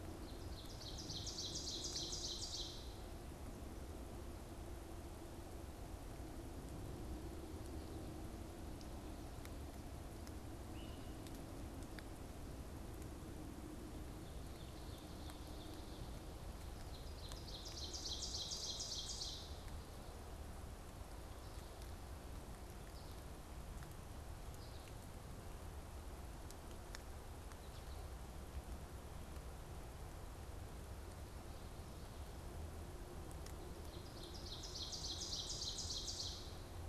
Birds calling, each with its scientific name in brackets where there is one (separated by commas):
Ovenbird (Seiurus aurocapilla), Great Crested Flycatcher (Myiarchus crinitus)